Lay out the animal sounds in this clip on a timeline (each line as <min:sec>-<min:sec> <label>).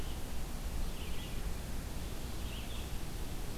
0:00.0-0:03.6 Red-eyed Vireo (Vireo olivaceus)